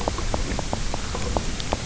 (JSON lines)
{"label": "biophony, grazing", "recorder": "SoundTrap 300"}